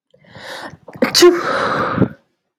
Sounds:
Sneeze